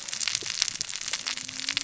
{"label": "biophony, cascading saw", "recorder": "SoundTrap 600 or HydroMoth"}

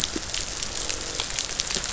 {"label": "biophony, croak", "recorder": "SoundTrap 500"}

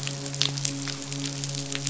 {"label": "biophony, midshipman", "recorder": "SoundTrap 500"}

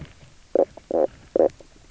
{"label": "biophony, knock croak", "recorder": "SoundTrap 300"}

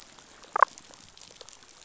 {"label": "biophony, damselfish", "recorder": "SoundTrap 500"}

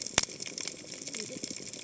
{"label": "biophony, cascading saw", "recorder": "HydroMoth"}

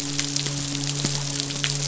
{"label": "biophony, midshipman", "recorder": "SoundTrap 500"}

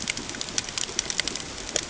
{"label": "ambient", "recorder": "HydroMoth"}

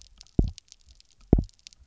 {"label": "biophony, double pulse", "recorder": "SoundTrap 300"}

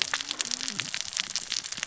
{"label": "biophony, cascading saw", "recorder": "SoundTrap 600 or HydroMoth"}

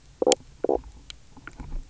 {"label": "biophony, knock croak", "recorder": "SoundTrap 300"}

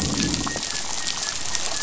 {"label": "anthrophony, boat engine", "recorder": "SoundTrap 500"}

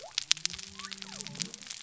{"label": "biophony", "recorder": "SoundTrap 300"}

